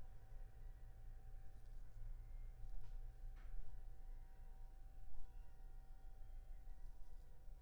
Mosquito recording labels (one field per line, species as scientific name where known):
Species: Anopheles funestus s.s.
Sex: female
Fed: unfed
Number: one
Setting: cup